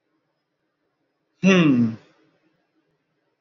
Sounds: Sigh